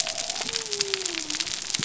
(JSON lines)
{"label": "biophony", "recorder": "SoundTrap 300"}